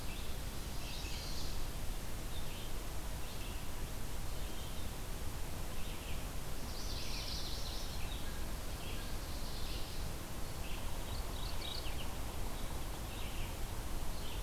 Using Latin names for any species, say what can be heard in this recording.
Vireo olivaceus, Setophaga pensylvanica, Geothlypis philadelphia